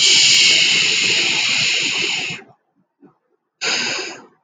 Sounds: Sigh